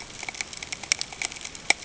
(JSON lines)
{"label": "ambient", "recorder": "HydroMoth"}